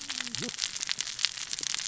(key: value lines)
label: biophony, cascading saw
recorder: SoundTrap 600 or HydroMoth